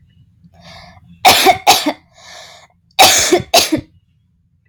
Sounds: Cough